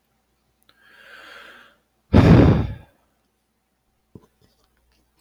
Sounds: Sigh